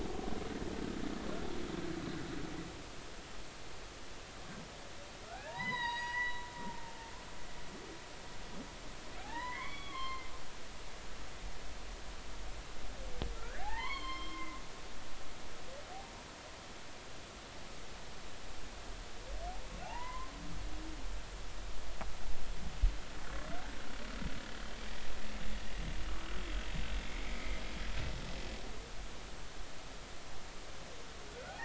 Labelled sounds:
5.3	6.9	humpback whale, 0.80 to 5.1 kHz
9.2	10.3	humpback whale, 0.80 to 4.3 kHz
13.3	14.6	humpback whale, 0.80 to 5.3 kHz
19.8	20.3	humpback whale, 0.80 to 2.8 kHz
27.0	27.6	humpback whale, 2.0 to 2.4 kHz
31.3	31.6	humpback whale, 0.80 to 1.6 kHz

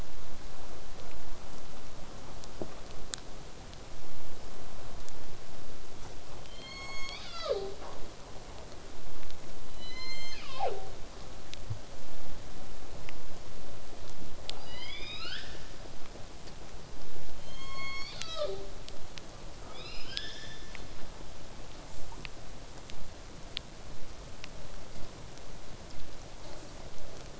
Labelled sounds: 6.5	8.0	killer whale, southern resident, call S01, 0.27 to 8.0 kHz
9.8	11.0	killer whale, southern resident, call S01, 0.27 to 8.0 kHz
14.6	15.7	killer whale, southern resident, L pod, call S19, 1.2 to 8.0 kHz
17.4	18.8	killer whale, southern resident, call S01, 0.22 to 8.0 kHz
19.7	20.8	killer whale, southern resident, L pod, call S19, 1.1 to 8.0 kHz
20.9	25.9	vessel noise, 0 to 8.0 kHz

